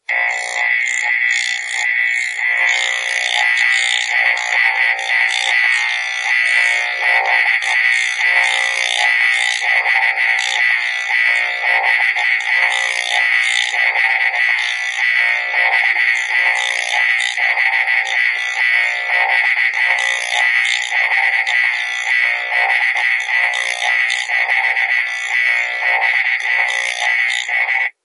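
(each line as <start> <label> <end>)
3.1 Electric voltage creates sound waves as it passes through a material. 7.0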